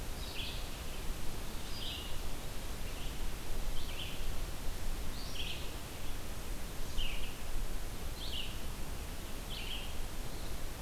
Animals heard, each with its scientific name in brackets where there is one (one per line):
Red-eyed Vireo (Vireo olivaceus)